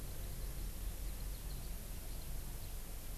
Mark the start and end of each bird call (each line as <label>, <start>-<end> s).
Eurasian Skylark (Alauda arvensis), 0.0-1.7 s